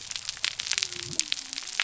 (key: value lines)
label: biophony
recorder: SoundTrap 300